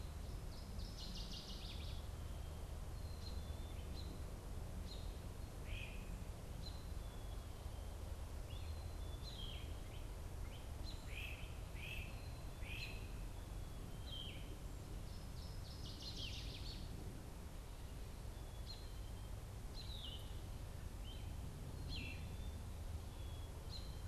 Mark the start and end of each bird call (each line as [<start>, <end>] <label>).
[0.00, 23.97] American Robin (Turdus migratorius)
[0.00, 24.07] Black-capped Chickadee (Poecile atricapillus)
[0.27, 2.17] Northern Waterthrush (Parkesia noveboracensis)
[5.47, 6.17] Great Crested Flycatcher (Myiarchus crinitus)
[8.97, 9.77] Yellow-throated Vireo (Vireo flavifrons)
[10.97, 13.07] Great Crested Flycatcher (Myiarchus crinitus)
[13.87, 22.37] Yellow-throated Vireo (Vireo flavifrons)
[14.87, 16.97] Northern Waterthrush (Parkesia noveboracensis)